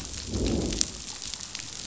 {"label": "biophony, growl", "recorder": "SoundTrap 500"}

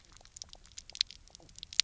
{"label": "biophony, knock croak", "recorder": "SoundTrap 300"}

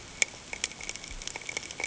{"label": "ambient", "recorder": "HydroMoth"}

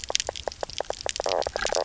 {"label": "biophony, knock croak", "recorder": "SoundTrap 300"}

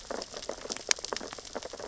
{"label": "biophony, sea urchins (Echinidae)", "recorder": "SoundTrap 600 or HydroMoth"}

